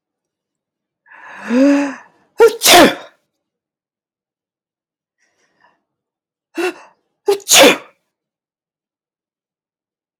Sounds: Sneeze